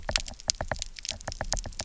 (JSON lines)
{"label": "biophony, knock", "recorder": "SoundTrap 300"}